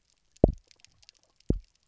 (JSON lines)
{"label": "biophony, double pulse", "recorder": "SoundTrap 300"}